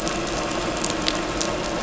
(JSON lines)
{"label": "anthrophony, boat engine", "recorder": "SoundTrap 500"}